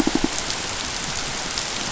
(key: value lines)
label: biophony
recorder: SoundTrap 500